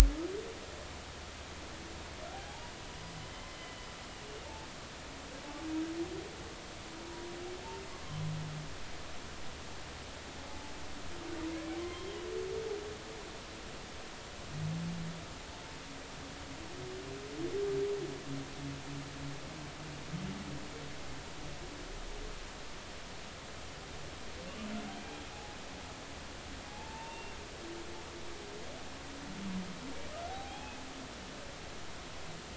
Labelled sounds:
2.5	2.7	humpback whale, 0.80 to 0.99 kHz
7.9	8.2	humpback whale, 0.99 to 1.2 kHz
10.5	10.7	humpback whale, 0.83 to 0.93 kHz
11.5	12.2	humpback whale, 0.96 to 3.3 kHz
25.3	25.6	humpback whale, 0.80 to 0.90 kHz
26.7	27.4	humpback whale, 0.80 to 2.8 kHz
30.3	30.8	humpback whale, 0.80 to 2.6 kHz

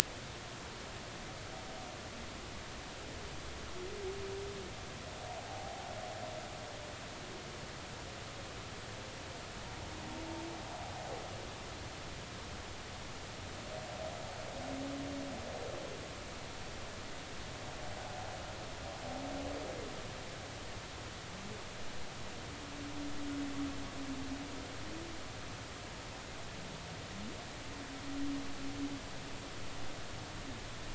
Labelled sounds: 5.5	5.8	humpback whale, 0.80 to 0.90 kHz

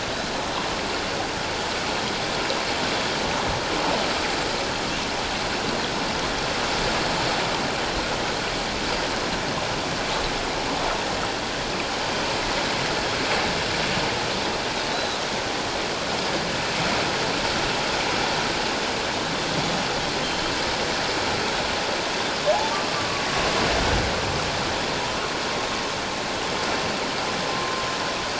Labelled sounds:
14.9	15.2	Pacific white-sided dolphin, 3.8 to 4.1 kHz
20.2	20.5	Pacific white-sided dolphin, 3.1 to 3.2 kHz
22.9	23.2	humpback whale, 1.1 to 1.2 kHz

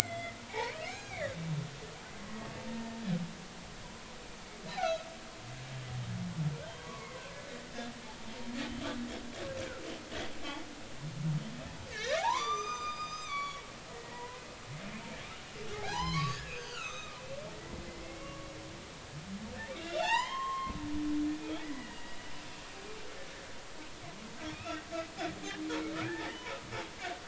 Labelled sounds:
0.0	1.4	humpback whale, 0.80 to 6.6 kHz
2.2	2.5	humpback whale, 1.0 to 1.2 kHz
4.8	5.1	humpback whale, 1.2 to 2.8 kHz
6.7	7.3	humpback whale, 0.96 to 3.3 kHz
11.9	14.4	humpback whale, 0.80 to 7.4 kHz
15.7	18.5	humpback whale, 0.80 to 6.4 kHz
19.8	22.0	humpback whale, 0.80 to 7.6 kHz
24.5	24.8	humpback whale, 1.2 to 2.8 kHz
26.1	26.4	humpback whale, 1.5 to 2.0 kHz

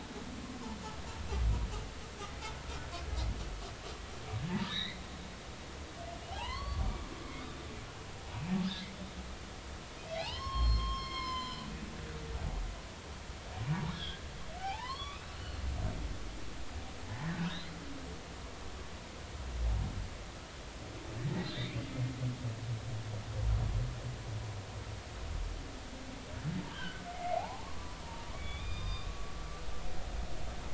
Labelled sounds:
4.5	5.0	humpback whale, 0.83 to 4.3 kHz
6.3	6.9	humpback whale, 0.80 to 4.6 kHz
10.1	11.7	humpback whale, 0.80 to 7.3 kHz
13.8	14.2	humpback whale, 1.5 to 4.0 kHz
14.6	15.4	humpback whale, 0.80 to 4.6 kHz
17.5	17.8	humpback whale, 3.6 to 4.3 kHz
21.5	21.8	humpback whale, 1.8 to 2.5 kHz
26.7	27.7	humpback whale, 0.80 to 3.4 kHz
28.3	29.1	humpback whale, 0.99 to 5.0 kHz

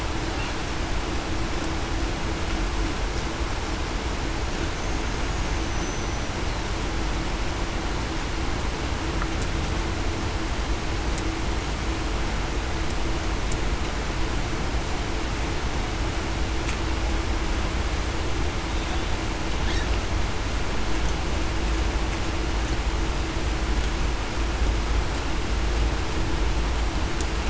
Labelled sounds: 5.7	6.3	killer whale, Bigg's (transient), 5.8 to 6.1 kHz

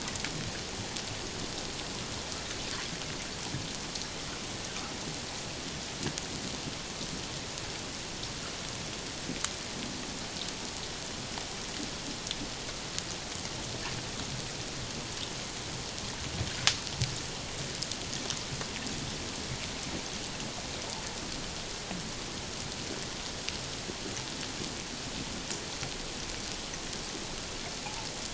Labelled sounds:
27.8	28.1	water noise, 0.78 to 0.97 kHz

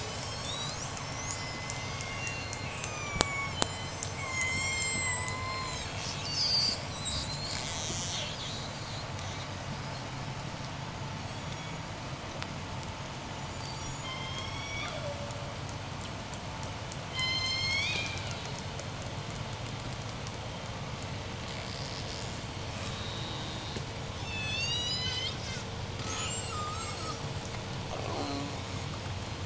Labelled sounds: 0.0	9.7	killer whale, J pod, 0.72 to 8.0 kHz
10.9	12.1	killer whale, J pod, 2.0 to 8.0 kHz
13.0	15.8	killer whale, J pod, 0.38 to 8.0 kHz
16.8	18.9	killer whale, J pod, call S01, 0.67 to 8.0 kHz
21.0	27.5	killer whale, J pod, 0.61 to 8.0 kHz
27.8	28.8	killer whale, J pod, call S04, 0.10 to 4.5 kHz
29.2	29.4	killer whale, J pod, 0.34 to 6.3 kHz

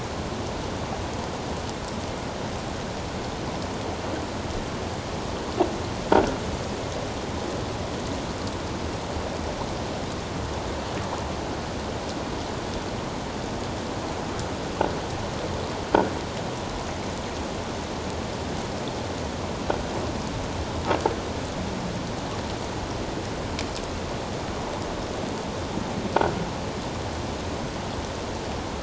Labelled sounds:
6.1	6.4	croaking sound likely from a nearby submerged object, 1.3 to 1.6 kHz

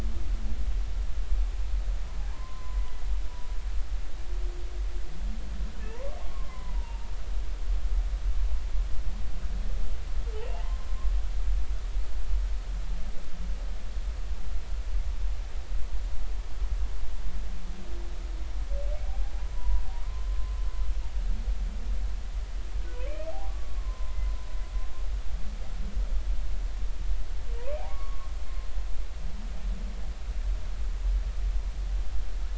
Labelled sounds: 2.2	2.9	humpback whale, 0.80 to 1.2 kHz
5.9	7.1	humpback whale, 0.86 to 1.2 kHz
10.4	10.9	humpback whale, 0.83 to 2.9 kHz
19.5	19.8	humpback whale, 0.93 to 1.0 kHz
23.5	24.2	humpback whale, 0.96 to 1.2 kHz
27.6	28.3	humpback whale, 0.90 to 1.3 kHz

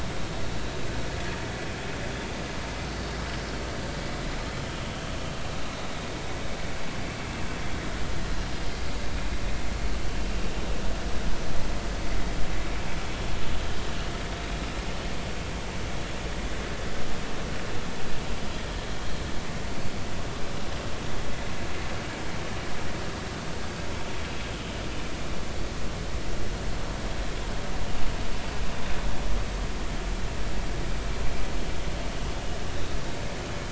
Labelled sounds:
5.7	6.1	vessel noise, 3.6 to 3.9 kHz

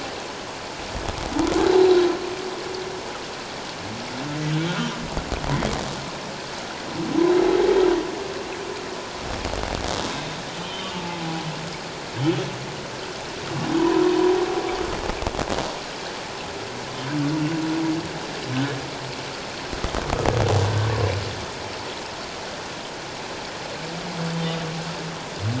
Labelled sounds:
10.5	11.2	humpback whale, 0.81 to 3.2 kHz
13.8	14.1	humpback whale, 0.91 to 1.1 kHz

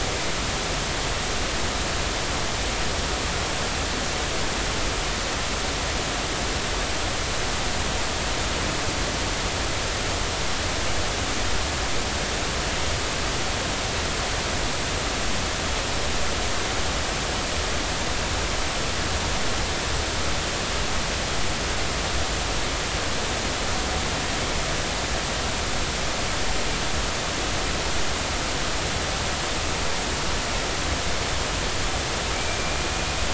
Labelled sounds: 32.3	32.6	killer whale, Bigg's (transient), 2.2 to 2.4 kHz

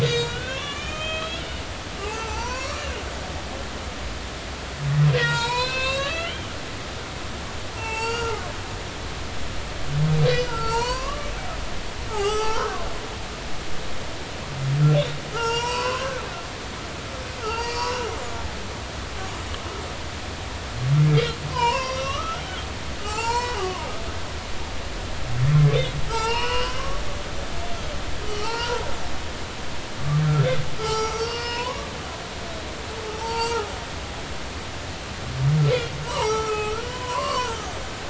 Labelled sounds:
0.0	1.4	humpback whale, 0.99 to 7.2 kHz
2.1	2.8	humpback whale, 0.80 to 5.8 kHz
5.1	7.1	humpback whale, 0.86 to 8.0 kHz
7.7	8.4	humpback whale, 0.83 to 8.0 kHz
10.3	11.3	humpback whale, 0.86 to 5.9 kHz
12.1	12.9	humpback whale, 0.80 to 8.0 kHz
15.0	16.2	humpback whale, 0.86 to 8.0 kHz
17.4	18.1	humpback whale, 0.83 to 4.8 kHz
21.1	22.4	humpback whale, 0.86 to 5.5 kHz
23.0	23.9	humpback whale, 0.80 to 7.4 kHz
26.1	26.8	humpback whale, 0.83 to 5.3 kHz
28.3	28.8	humpback whale, 0.83 to 3.1 kHz
30.8	32.9	humpback whale, 0.80 to 8.0 kHz
33.2	34.6	humpback whale, 0.80 to 4.7 kHz
36.0	37.7	humpback whale, 0.80 to 5.8 kHz

